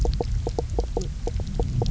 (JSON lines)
{"label": "biophony, knock croak", "recorder": "SoundTrap 300"}